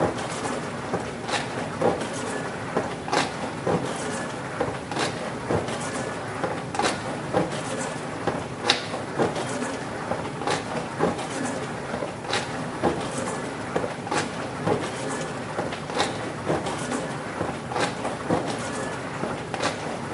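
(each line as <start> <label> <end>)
0.0 A washing machine produces a rhythmic, step-like sound indoors nearby. 20.1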